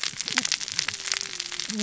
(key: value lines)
label: biophony, cascading saw
recorder: SoundTrap 600 or HydroMoth